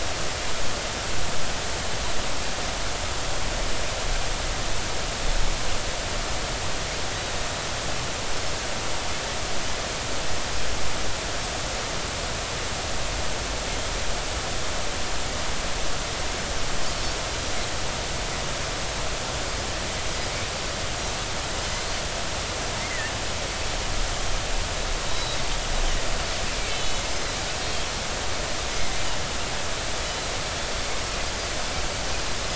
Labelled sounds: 22.8	23.1	Pacific white-sided dolphin, 1.7 to 2.2 kHz
25.1	25.4	Pacific white-sided dolphin, 3.7 to 4.1 kHz
26.7	27.9	Pacific white-sided dolphin, 2.9 to 3.4 kHz
30.0	30.3	Pacific white-sided dolphin, 3.9 to 4.1 kHz

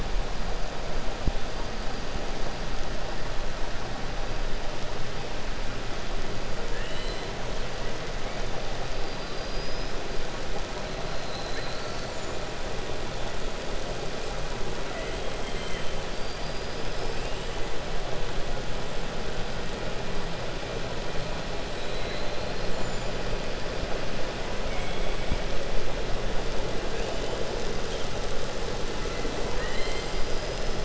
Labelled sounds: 6.6	7.2	killer whale, 0.95 to 4.6 kHz
24.6	25.4	killer whale, 2.0 to 4.1 kHz
29.4	30.7	killer whale, 0.91 to 5.6 kHz

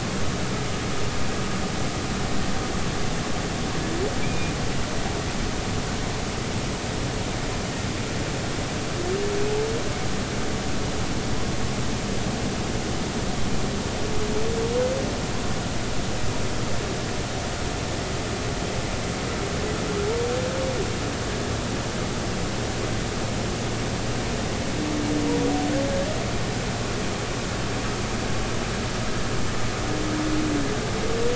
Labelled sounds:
4.2	4.5	humpback whale, 2.2 to 2.5 kHz

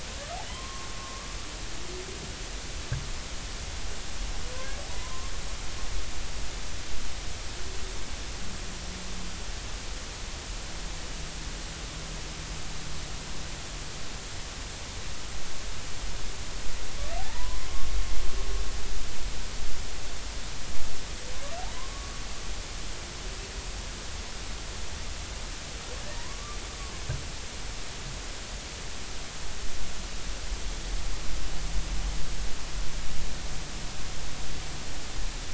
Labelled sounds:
0.5	1.3	humpback whale, 0.93 to 1.2 kHz
4.5	5.3	humpback whale, 0.93 to 1.7 kHz
17.2	17.6	humpback whale, 0.80 to 1.1 kHz
21.7	22.2	humpback whale, 0.96 to 1.3 kHz
26.0	26.6	humpback whale, 0.90 to 2.0 kHz

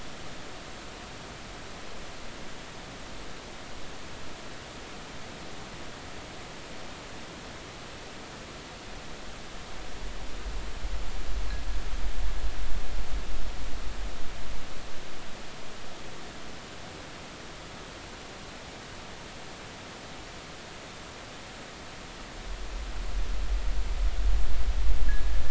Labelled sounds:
25.1	25.3	fishing gear, 1.6 to 1.8 kHz

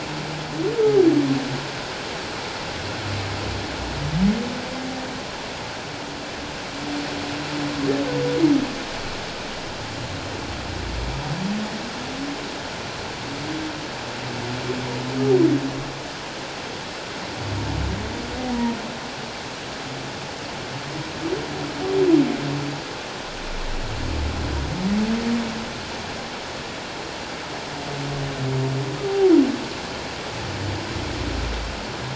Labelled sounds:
18.5	18.8	humpback whale, 0.88 to 1.0 kHz

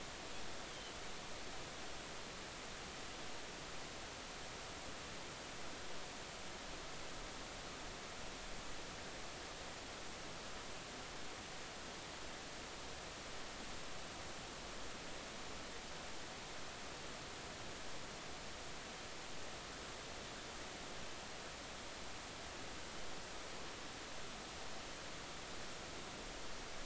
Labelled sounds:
0.7	0.9	Pacific white-sided dolphin, 2.9 to 3.4 kHz

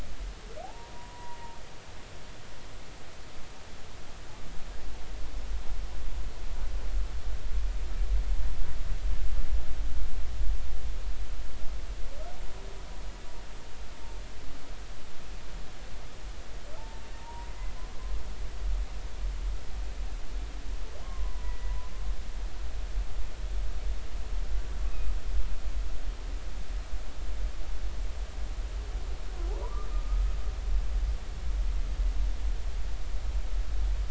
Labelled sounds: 0.6	1.4	humpback whale, 0.80 to 1.0 kHz
16.8	17.5	humpback whale, 0.83 to 0.99 kHz
21.0	21.8	humpback whale, 0.93 to 2.0 kHz
29.6	30.2	humpback whale, 0.90 to 1.3 kHz

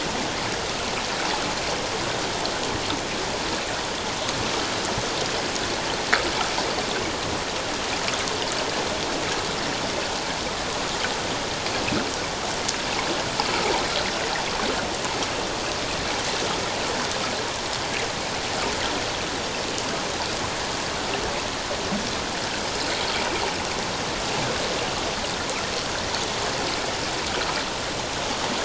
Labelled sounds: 13.5	13.7	water noise, 1.2 to 1.5 kHz

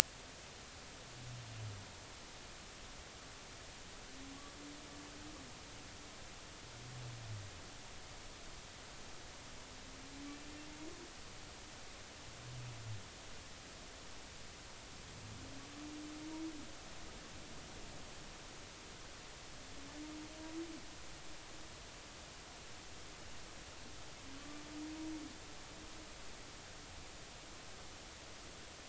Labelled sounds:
24.4	24.6	humpback whale, 1.1 to 1.2 kHz

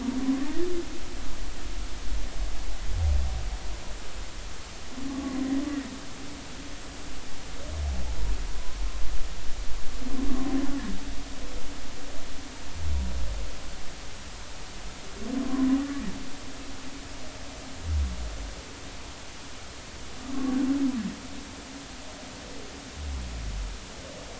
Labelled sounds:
5.1	5.4	humpback whale, 1.1 to 1.2 kHz
8.5	8.8	humpback whale, 0.93 to 1.1 kHz
20.2	20.6	humpback whale, 1.0 to 1.2 kHz

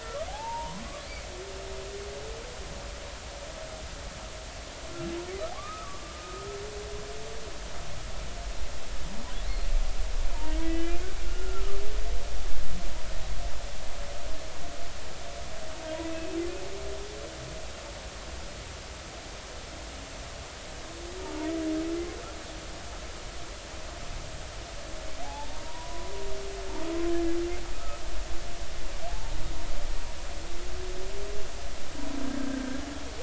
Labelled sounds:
0.0	0.8	humpback whale, 0.80 to 1.4 kHz
5.5	6.6	humpback whale, 1.0 to 1.3 kHz
10.6	11.8	humpback whale, 1.1 to 3.1 kHz
16.1	16.4	humpback whale, 2.5 to 2.7 kHz
25.2	26.1	humpback whale, 0.80 to 1.0 kHz
27.1	28.0	humpback whale, 1.2 to 1.8 kHz
29.1	29.3	humpback whale, 0.80 to 0.96 kHz
32.4	32.8	humpback whale, 1.5 to 1.8 kHz

